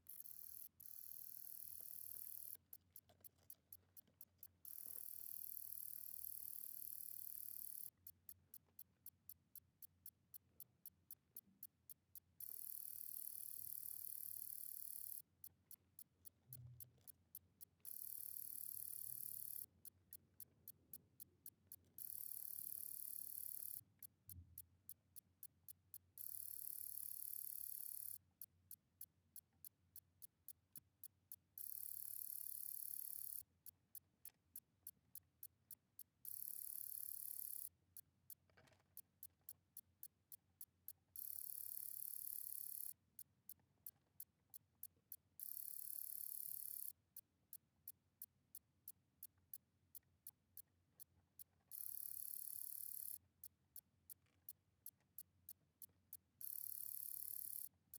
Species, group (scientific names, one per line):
Helicocercus triguttatus
Orthoptera